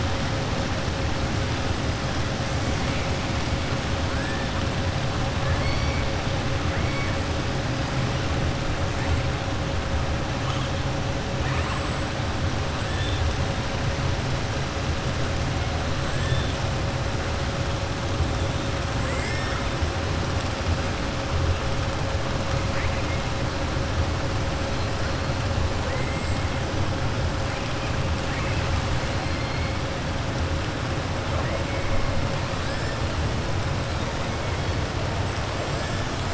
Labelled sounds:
5.4	6.0	killer whale, southern resident, 1.1 to 5.6 kHz
11.6	12.1	killer whale, southern resident, 7.5 to 7.9 kHz
18.9	19.6	killer whale, southern resident, 1.1 to 2.2 kHz

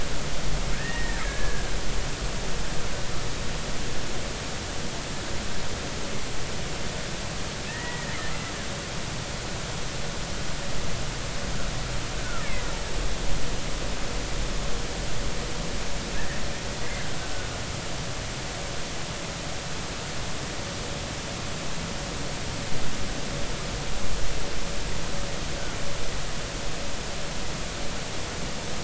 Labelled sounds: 0.7	1.7	killer whale, Bigg's (transient), 1.5 to 2.0 kHz
7.7	8.2	killer whale, Bigg's (transient), 1.7 to 2.0 kHz
12.2	12.5	killer whale, Bigg's (transient), 1.2 to 1.6 kHz

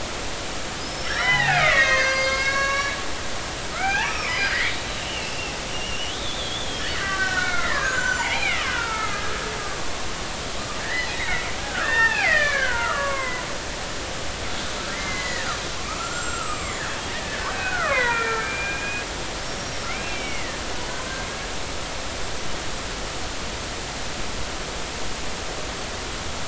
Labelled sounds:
0.8	3.0	killer whale, Bigg's (transient), 0.80 to 6.7 kHz
3.7	9.3	killer whale, Bigg's (transient), 0.80 to 7.3 kHz
9.6	10.0	killer whale, Bigg's (transient), 0.96 to 1.2 kHz
10.8	13.6	killer whale, Bigg's (transient), 0.80 to 3.9 kHz
14.9	19.0	killer whale, Bigg's (transient), 0.90 to 7.7 kHz
19.5	20.6	killer whale, Bigg's (transient), 1.7 to 5.7 kHz

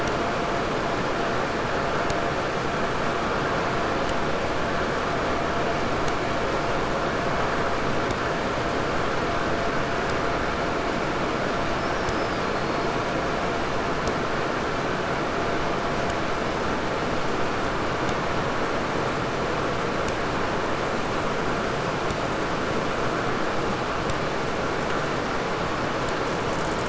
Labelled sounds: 11.3	13.3	killer whale, 3.5 to 8.0 kHz
26.1	26.8	killer whale, 5.6 to 8.0 kHz

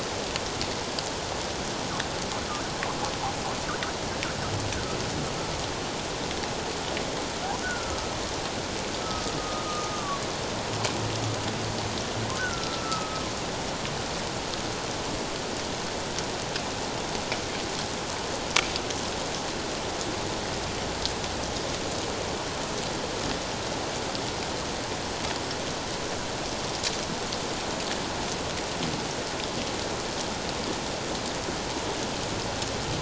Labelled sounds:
7.6	8.1	humpback whale, 1.2 to 1.6 kHz
9.0	10.2	humpback whale, 1.0 to 1.3 kHz
12.4	13.2	humpback whale, 1.2 to 1.6 kHz

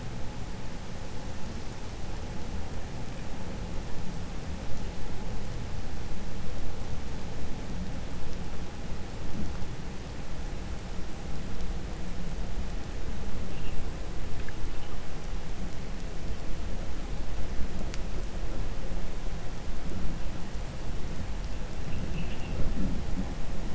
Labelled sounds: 21.8	22.6	vessel noise, 2.0 to 3.4 kHz

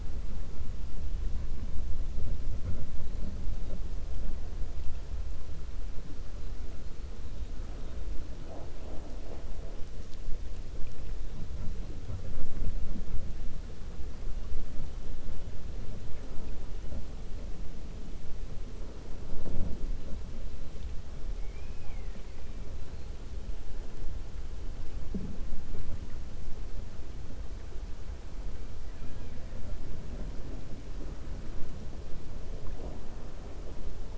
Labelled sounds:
21.3	22.5	killer whale, 1.7 to 3.2 kHz

